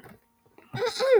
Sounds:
Throat clearing